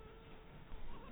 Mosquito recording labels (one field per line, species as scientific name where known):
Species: Anopheles maculatus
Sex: female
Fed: blood-fed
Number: one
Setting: cup